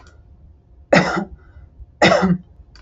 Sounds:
Cough